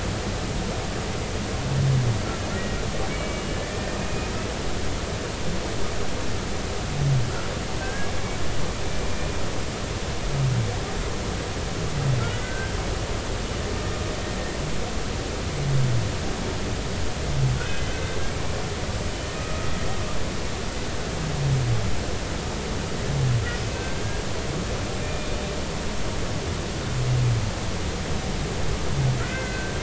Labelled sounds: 2.5	4.0	humpback whale, 1.7 to 2.3 kHz
7.8	8.1	humpback whale, 1.5 to 1.7 kHz
9.0	9.4	humpback whale, 2.3 to 2.5 kHz
12.2	12.8	humpback whale, 1.3 to 1.6 kHz
17.9	18.2	humpback whale, 1.5 to 1.6 kHz
19.3	19.7	humpback whale, 1.2 to 1.3 kHz
25.0	25.3	humpback whale, 2.4 to 2.5 kHz
29.2	29.7	humpback whale, 1.3 to 2.1 kHz

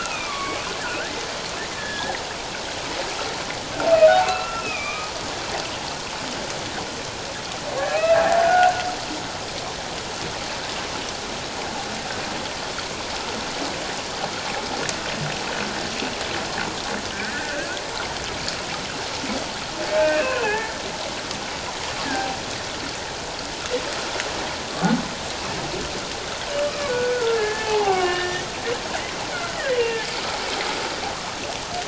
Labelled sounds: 1.7	2.2	humpback whale, 1.6 to 3.9 kHz
4.2	5.1	humpback whale, 1.1 to 2.8 kHz
7.9	8.8	humpback whale, 1.4 to 2.7 kHz
17.3	17.7	humpback whale, 1.4 to 1.9 kHz
20.0	20.8	humpback whale, 0.78 to 2.7 kHz
22.0	22.4	humpback whale, 0.78 to 1.8 kHz
26.7	28.5	humpback whale, 0.78 to 2.9 kHz
29.7	30.0	humpback whale, 2.7 to 3.0 kHz

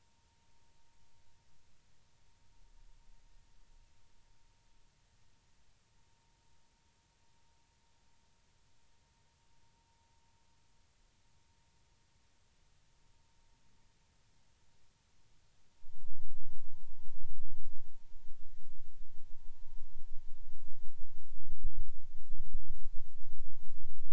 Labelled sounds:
15.8	16.1	vessel noise, 0.90 to 0.99 kHz

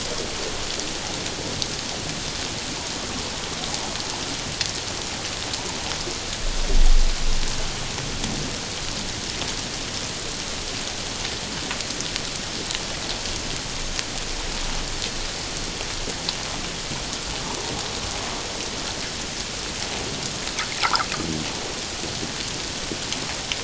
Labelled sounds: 20.8	21.1	water noise, 0.78 to 1.7 kHz

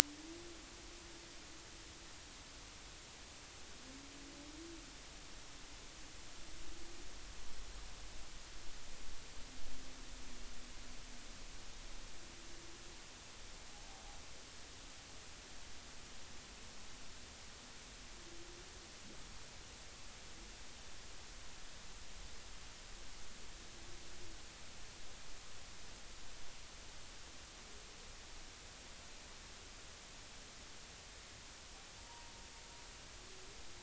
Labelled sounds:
32.0	32.3	humpback whale, 0.86 to 1.1 kHz

